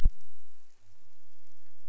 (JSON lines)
{"label": "biophony", "recorder": "SoundTrap 300"}